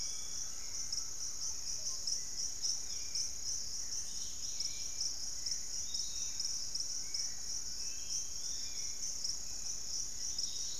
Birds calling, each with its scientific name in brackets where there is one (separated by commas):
Undulated Tinamou (Crypturellus undulatus), Dusky-capped Greenlet (Pachysylvia hypoxantha), Piratic Flycatcher (Legatus leucophaius), unidentified bird, Fasciated Antshrike (Cymbilaimus lineatus), Hauxwell's Thrush (Turdus hauxwelli), Collared Trogon (Trogon collaris)